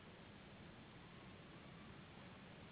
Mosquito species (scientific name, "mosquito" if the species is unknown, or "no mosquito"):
Anopheles gambiae s.s.